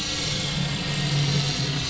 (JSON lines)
{"label": "anthrophony, boat engine", "recorder": "SoundTrap 500"}